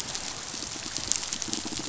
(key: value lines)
label: biophony, pulse
recorder: SoundTrap 500